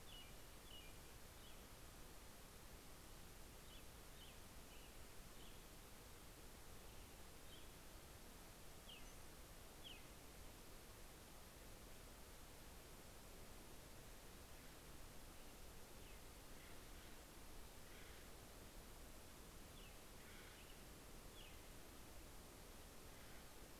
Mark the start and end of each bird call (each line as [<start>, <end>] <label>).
[0.00, 10.54] American Robin (Turdus migratorius)
[15.14, 21.74] American Robin (Turdus migratorius)
[16.04, 18.44] Acorn Woodpecker (Melanerpes formicivorus)
[19.84, 21.04] Acorn Woodpecker (Melanerpes formicivorus)
[22.64, 23.74] Acorn Woodpecker (Melanerpes formicivorus)